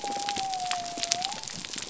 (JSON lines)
{"label": "biophony", "recorder": "SoundTrap 300"}